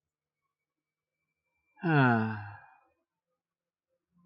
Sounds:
Sigh